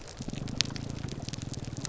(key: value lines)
label: biophony, grouper groan
recorder: SoundTrap 300